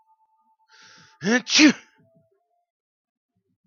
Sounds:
Sneeze